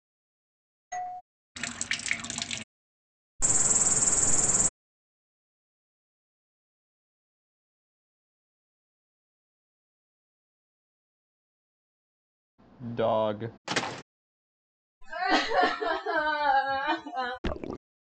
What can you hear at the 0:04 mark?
cricket